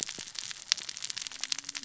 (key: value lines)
label: biophony, cascading saw
recorder: SoundTrap 600 or HydroMoth